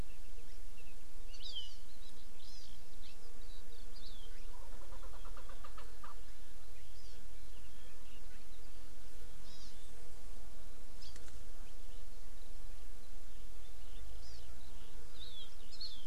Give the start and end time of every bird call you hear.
[1.36, 1.76] Hawaii Amakihi (Chlorodrepanis virens)
[2.46, 2.66] Hawaii Amakihi (Chlorodrepanis virens)
[3.96, 4.26] Hawaii Amakihi (Chlorodrepanis virens)
[4.86, 6.16] Chukar (Alectoris chukar)
[6.96, 7.16] Hawaii Amakihi (Chlorodrepanis virens)
[9.46, 9.76] Hawaii Amakihi (Chlorodrepanis virens)
[10.96, 11.06] Hawaii Amakihi (Chlorodrepanis virens)
[14.16, 14.46] Hawaii Amakihi (Chlorodrepanis virens)
[15.16, 16.06] Hawaii Amakihi (Chlorodrepanis virens)

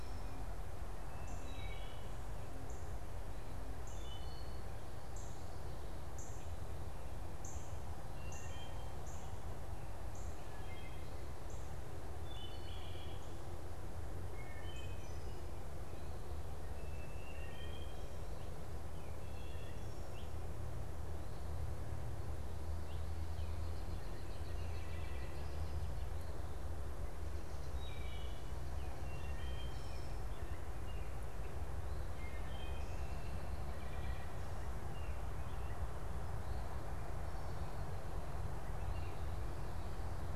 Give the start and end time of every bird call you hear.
[0.00, 9.09] Wood Thrush (Hylocichla mustelina)
[0.00, 9.39] Northern Cardinal (Cardinalis cardinalis)
[9.99, 15.29] Northern Cardinal (Cardinalis cardinalis)
[10.19, 19.89] Wood Thrush (Hylocichla mustelina)
[23.49, 24.59] American Robin (Turdus migratorius)
[24.49, 33.39] Wood Thrush (Hylocichla mustelina)

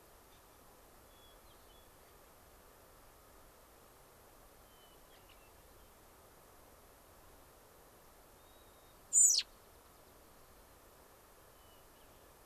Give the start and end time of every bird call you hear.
[1.01, 2.21] Hermit Thrush (Catharus guttatus)
[4.61, 5.91] Hermit Thrush (Catharus guttatus)
[8.31, 9.01] Hermit Thrush (Catharus guttatus)
[9.01, 9.51] American Robin (Turdus migratorius)
[11.41, 12.41] Hermit Thrush (Catharus guttatus)

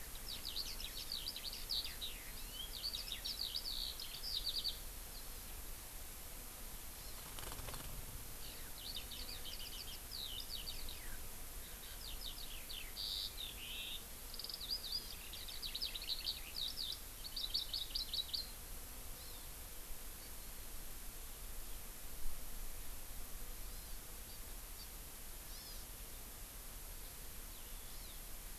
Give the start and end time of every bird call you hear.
[0.10, 4.80] Eurasian Skylark (Alauda arvensis)
[7.00, 7.20] Hawaii Amakihi (Chlorodrepanis virens)
[8.40, 11.20] Eurasian Skylark (Alauda arvensis)
[11.60, 18.60] Eurasian Skylark (Alauda arvensis)
[19.10, 19.50] Hawaii Amakihi (Chlorodrepanis virens)
[23.60, 24.00] Hawaii Amakihi (Chlorodrepanis virens)
[24.30, 24.40] Hawaii Amakihi (Chlorodrepanis virens)
[24.80, 24.90] Hawaii Amakihi (Chlorodrepanis virens)
[25.50, 25.80] Hawaii Amakihi (Chlorodrepanis virens)
[27.90, 28.20] Hawaii Amakihi (Chlorodrepanis virens)

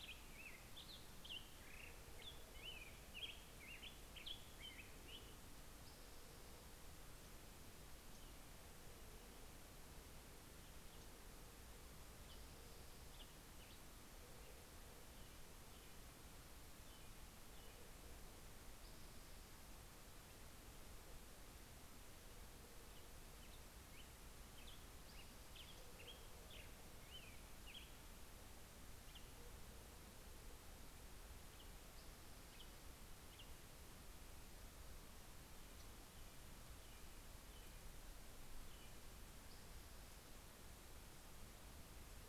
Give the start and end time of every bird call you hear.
[0.00, 5.55] Black-headed Grosbeak (Pheucticus melanocephalus)
[5.05, 7.25] Spotted Towhee (Pipilo maculatus)
[11.95, 13.35] Spotted Towhee (Pipilo maculatus)
[12.05, 18.15] American Robin (Turdus migratorius)
[18.45, 20.05] Spotted Towhee (Pipilo maculatus)
[22.75, 29.35] Black-headed Grosbeak (Pheucticus melanocephalus)
[24.85, 26.45] Spotted Towhee (Pipilo maculatus)
[31.45, 33.35] Spotted Towhee (Pipilo maculatus)
[35.45, 39.05] American Robin (Turdus migratorius)
[38.75, 40.65] Spotted Towhee (Pipilo maculatus)

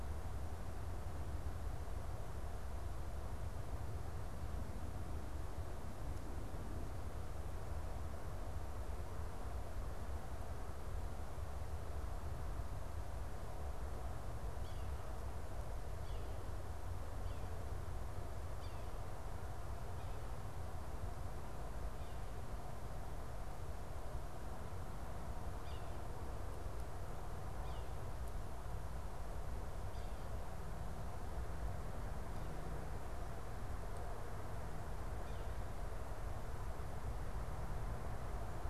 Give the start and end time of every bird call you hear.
[14.24, 18.94] Yellow-bellied Sapsucker (Sphyrapicus varius)
[25.44, 28.04] Yellow-bellied Sapsucker (Sphyrapicus varius)

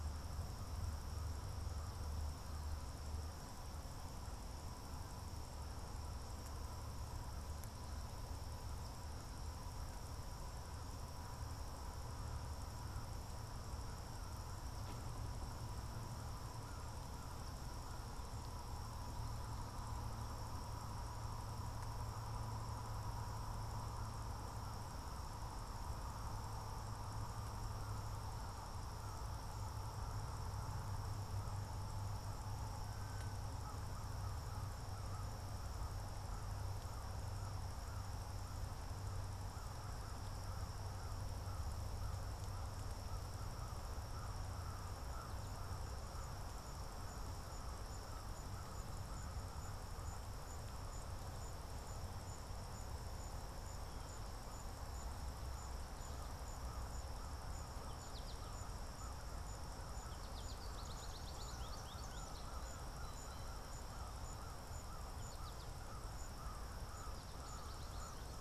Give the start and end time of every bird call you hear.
[0.00, 8.67] American Crow (Corvus brachyrhynchos)
[54.67, 68.41] American Crow (Corvus brachyrhynchos)
[57.57, 63.67] American Goldfinch (Spinus tristis)
[64.57, 68.41] American Goldfinch (Spinus tristis)

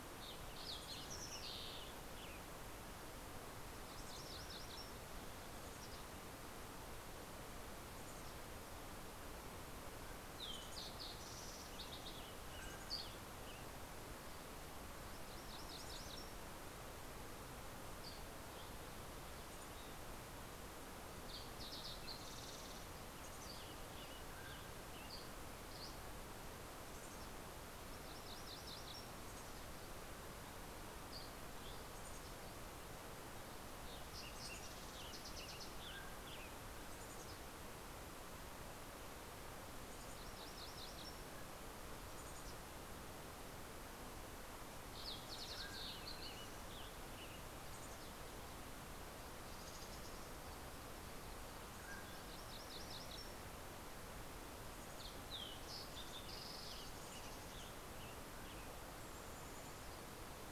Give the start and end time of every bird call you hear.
[0.00, 2.47] Fox Sparrow (Passerella iliaca)
[0.57, 2.77] Western Tanager (Piranga ludoviciana)
[3.57, 5.37] MacGillivray's Warbler (Geothlypis tolmiei)
[3.67, 6.67] Mountain Chickadee (Poecile gambeli)
[7.67, 8.97] Mountain Chickadee (Poecile gambeli)
[10.17, 11.37] Mountain Chickadee (Poecile gambeli)
[10.17, 12.77] Fox Sparrow (Passerella iliaca)
[10.87, 14.27] Western Tanager (Piranga ludoviciana)
[11.97, 14.07] Mountain Quail (Oreortyx pictus)
[12.47, 13.47] Mountain Chickadee (Poecile gambeli)
[14.47, 16.57] MacGillivray's Warbler (Geothlypis tolmiei)
[17.57, 20.17] Dusky Flycatcher (Empidonax oberholseri)
[19.27, 20.37] Mountain Chickadee (Poecile gambeli)
[20.07, 23.67] Fox Sparrow (Passerella iliaca)
[21.67, 25.87] Western Tanager (Piranga ludoviciana)
[22.97, 24.87] Mountain Chickadee (Poecile gambeli)
[23.87, 25.07] Mountain Quail (Oreortyx pictus)
[24.57, 26.17] Dusky Flycatcher (Empidonax oberholseri)
[26.47, 27.57] Mountain Chickadee (Poecile gambeli)
[27.17, 29.57] MacGillivray's Warbler (Geothlypis tolmiei)
[28.97, 30.07] Mountain Chickadee (Poecile gambeli)
[30.67, 31.97] Dusky Flycatcher (Empidonax oberholseri)
[31.67, 32.67] Mountain Chickadee (Poecile gambeli)
[33.47, 36.07] Fox Sparrow (Passerella iliaca)
[33.47, 36.97] Western Tanager (Piranga ludoviciana)
[34.07, 35.27] Mountain Chickadee (Poecile gambeli)
[35.37, 36.47] Mountain Quail (Oreortyx pictus)
[36.77, 37.97] Mountain Chickadee (Poecile gambeli)
[39.77, 40.77] Mountain Chickadee (Poecile gambeli)
[39.77, 41.47] MacGillivray's Warbler (Geothlypis tolmiei)
[41.77, 42.97] Mountain Chickadee (Poecile gambeli)
[43.97, 46.67] Fox Sparrow (Passerella iliaca)
[44.77, 46.87] Mountain Quail (Oreortyx pictus)
[45.17, 47.97] Western Tanager (Piranga ludoviciana)
[47.17, 48.37] Mountain Chickadee (Poecile gambeli)
[49.07, 51.57] Mountain Chickadee (Poecile gambeli)
[51.07, 52.87] Mountain Quail (Oreortyx pictus)
[51.97, 53.77] MacGillivray's Warbler (Geothlypis tolmiei)
[54.47, 57.17] Fox Sparrow (Passerella iliaca)
[55.87, 59.17] Western Tanager (Piranga ludoviciana)
[58.57, 60.37] Mountain Chickadee (Poecile gambeli)

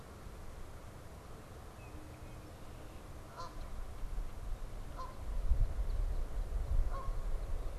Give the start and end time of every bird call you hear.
[0.00, 7.79] Canada Goose (Branta canadensis)

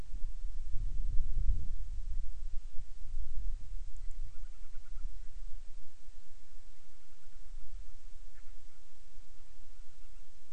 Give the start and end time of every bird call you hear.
[3.83, 5.13] Band-rumped Storm-Petrel (Hydrobates castro)
[6.83, 10.43] Band-rumped Storm-Petrel (Hydrobates castro)

